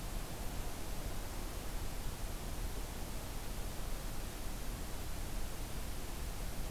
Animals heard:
forest ambience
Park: Acadia National Park